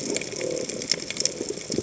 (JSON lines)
{"label": "biophony", "recorder": "HydroMoth"}